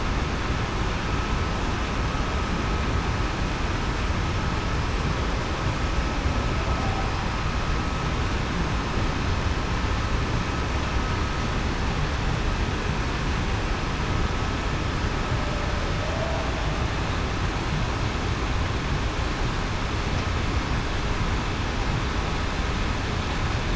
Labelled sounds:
16.0	16.4	humpback whale, 0.56 to 0.73 kHz

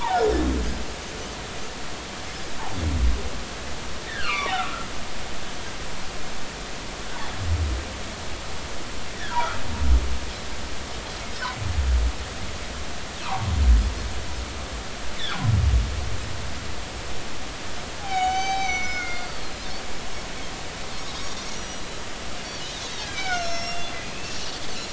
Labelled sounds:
4.2	5.6	humpback whale, 0.90 to 3.3 kHz
9.1	9.4	humpback whale, 1.3 to 2.0 kHz
13.2	13.5	humpback whale, 0.80 to 1.4 kHz
15.2	15.4	humpback whale, 3.2 to 4.0 kHz
18.0	19.3	humpback whale, 0.80 to 6.2 kHz
19.1	19.6	Pacific white-sided dolphin, 4.0 to 4.8 kHz
21.5	21.8	Pacific white-sided dolphin, 5.7 to 6.0 kHz
22.6	23.3	Pacific white-sided dolphin, 3.4 to 4.3 kHz
23.1	24.4	humpback whale, 1.3 to 7.0 kHz
24.3	24.5	Pacific white-sided dolphin, 5.7 to 5.9 kHz

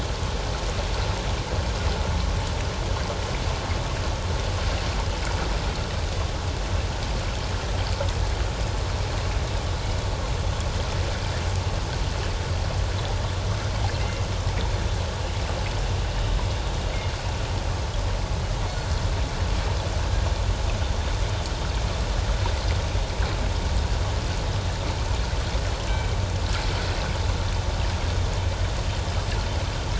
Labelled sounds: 13.9	14.2	killer whale, northern resident, G clan, 2.6 to 2.8 kHz

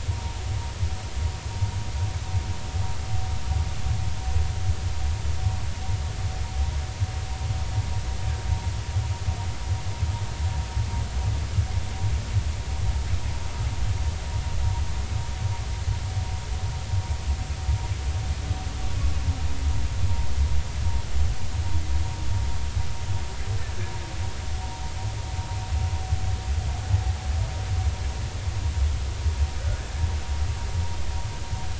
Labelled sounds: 0.2	0.4	humpback whale, 0.83 to 0.99 kHz

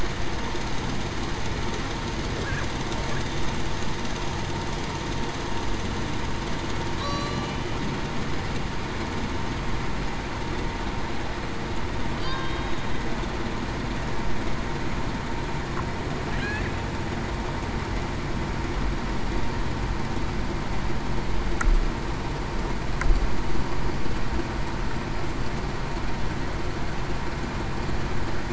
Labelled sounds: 7.0	7.5	killer whale, Bigg's (transient), 1.1 to 4.2 kHz
12.1	12.7	killer whale, Bigg's (transient), 3.0 to 3.2 kHz

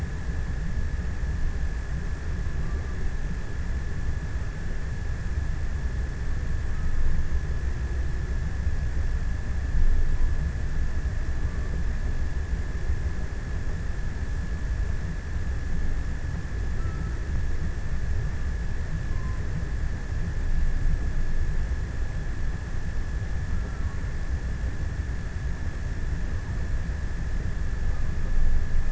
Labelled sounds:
16.0	18.0	killer whale, offshore, 0.88 to 1.8 kHz

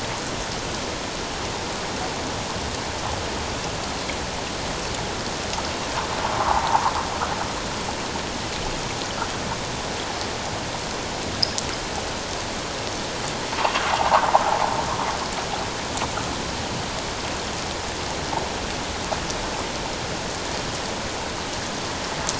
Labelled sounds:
6.3	6.9	sound from a nearby beach, 0.78 to 1.3 kHz
13.9	14.2	sound from a nearby beach, 0.78 to 1.3 kHz

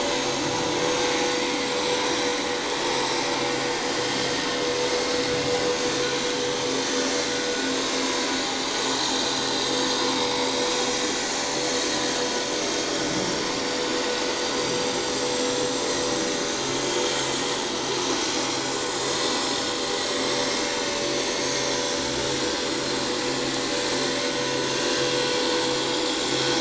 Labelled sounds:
1.5	1.8	vessel noise, 7.4 to 7.9 kHz
4.0	4.3	vessel noise, 3.0 to 3.3 kHz
8.0	8.3	vessel noise, 6.5 to 6.7 kHz
10.1	10.5	vessel noise, 2.1 to 2.4 kHz
11.2	11.9	vessel noise, 4.2 to 4.4 kHz
12.2	12.6	vessel noise, 6.0 to 6.3 kHz
14.0	14.9	vessel noise, 5.8 to 7.7 kHz
16.8	17.1	vessel noise, 6.5 to 6.9 kHz
20.6	21.0	vessel noise, 2.6 to 6.4 kHz
22.5	22.8	vessel noise, 6.8 to 7.0 kHz
25.7	26.6	vessel noise, 5.3 to 7.3 kHz

